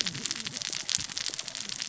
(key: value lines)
label: biophony, cascading saw
recorder: SoundTrap 600 or HydroMoth